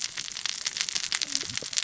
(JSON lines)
{"label": "biophony, cascading saw", "recorder": "SoundTrap 600 or HydroMoth"}